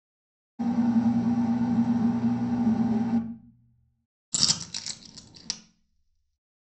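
At 0.6 seconds, an engine can be heard. Then at 4.3 seconds, a coin drops.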